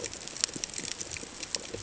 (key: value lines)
label: ambient
recorder: HydroMoth